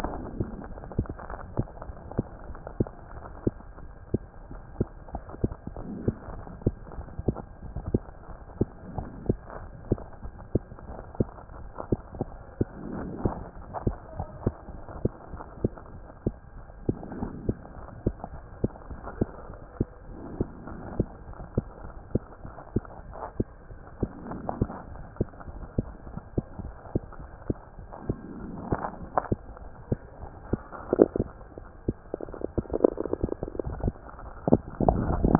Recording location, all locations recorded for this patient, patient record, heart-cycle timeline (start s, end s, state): mitral valve (MV)
aortic valve (AV)+pulmonary valve (PV)+tricuspid valve (TV)+mitral valve (MV)
#Age: Child
#Sex: Female
#Height: nan
#Weight: nan
#Pregnancy status: False
#Murmur: Absent
#Murmur locations: nan
#Most audible location: nan
#Systolic murmur timing: nan
#Systolic murmur shape: nan
#Systolic murmur grading: nan
#Systolic murmur pitch: nan
#Systolic murmur quality: nan
#Diastolic murmur timing: nan
#Diastolic murmur shape: nan
#Diastolic murmur grading: nan
#Diastolic murmur pitch: nan
#Diastolic murmur quality: nan
#Outcome: Abnormal
#Campaign: 2015 screening campaign
0.00	1.27	unannotated
1.27	1.40	S1
1.40	1.56	systole
1.56	1.68	S2
1.68	1.86	diastole
1.86	1.96	S1
1.96	2.12	systole
2.12	2.26	S2
2.26	2.44	diastole
2.44	2.56	S1
2.56	2.74	systole
2.74	2.88	S2
2.88	3.12	diastole
3.12	3.24	S1
3.24	3.42	systole
3.42	3.56	S2
3.56	3.76	diastole
3.76	3.90	S1
3.90	4.10	systole
4.10	4.26	S2
4.26	4.47	diastole
4.47	4.62	S1
4.62	4.78	systole
4.78	4.90	S2
4.90	5.12	diastole
5.12	5.22	S1
5.22	5.42	systole
5.42	5.56	S2
5.56	5.76	diastole
5.76	5.86	S1
5.86	6.04	systole
6.04	6.16	S2
6.16	6.34	diastole
6.34	6.46	S1
6.46	6.62	systole
6.62	6.74	S2
6.74	6.94	diastole
6.94	7.08	S1
7.08	7.26	systole
7.26	7.40	S2
7.40	7.60	diastole
7.60	7.74	S1
7.74	7.92	systole
7.92	8.08	S2
8.08	8.26	diastole
8.26	8.38	S1
8.38	8.56	systole
8.56	8.70	S2
8.70	8.90	diastole
8.90	9.06	S1
9.06	9.22	systole
9.22	9.38	S2
9.38	9.58	diastole
9.58	9.70	S1
9.70	9.86	systole
9.86	10.00	S2
10.00	10.22	diastole
10.22	10.32	S1
10.32	10.50	systole
10.50	10.64	S2
10.64	10.88	diastole
10.88	10.98	S1
10.98	11.16	systole
11.16	11.32	S2
11.32	11.56	diastole
11.56	11.70	S1
11.70	11.88	systole
11.88	12.00	S2
12.00	12.18	diastole
12.18	12.32	S1
12.32	12.56	systole
12.56	12.70	S2
12.70	12.90	diastole
12.90	13.08	S1
13.08	13.22	systole
13.22	13.36	S2
13.36	13.53	diastole
13.53	13.64	S1
13.64	13.82	systole
13.82	13.98	S2
13.98	14.16	diastole
14.16	14.28	S1
14.28	14.44	systole
14.44	14.54	S2
14.54	14.67	diastole
14.67	14.80	S1
14.80	14.96	systole
14.96	15.12	S2
15.12	15.29	diastole
15.29	15.42	S1
15.42	15.60	systole
15.60	15.74	S2
15.74	15.91	diastole
15.91	16.02	S1
16.02	16.22	systole
16.22	16.34	S2
16.34	16.54	diastole
16.54	16.64	S1
16.64	16.84	systole
16.84	16.96	S2
16.96	17.16	diastole
17.16	17.30	S1
17.30	17.46	systole
17.46	17.56	S2
17.56	17.75	diastole
17.75	17.84	S1
17.84	18.02	systole
18.02	18.16	S2
18.16	18.30	diastole
18.30	18.42	S1
18.42	18.60	systole
18.60	18.72	S2
18.72	18.87	diastole
18.87	19.00	S1
19.00	19.16	systole
19.16	19.30	S2
19.30	19.47	diastole
19.47	19.56	S1
19.56	19.76	systole
19.76	19.90	S2
19.90	20.07	diastole
20.07	20.18	S1
20.18	20.38	systole
20.38	20.50	S2
20.50	20.69	diastole
20.69	20.82	S1
20.82	20.98	systole
20.98	21.10	S2
21.10	21.25	diastole
21.25	21.36	S1
21.36	21.54	systole
21.54	21.66	S2
21.66	21.81	diastole
21.81	21.94	S1
21.94	22.10	systole
22.10	22.22	S2
22.22	22.44	diastole
22.44	22.54	S1
22.54	22.72	systole
22.72	22.86	S2
22.86	23.05	diastole
23.05	23.16	S1
23.16	23.36	systole
23.36	23.50	S2
23.50	23.67	diastole
23.67	23.78	S1
23.78	23.98	systole
23.98	24.10	S2
24.10	35.39	unannotated